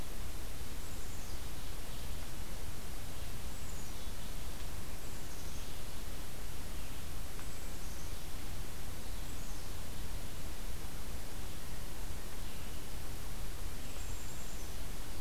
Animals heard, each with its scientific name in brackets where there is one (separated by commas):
Red-eyed Vireo (Vireo olivaceus), Black-capped Chickadee (Poecile atricapillus)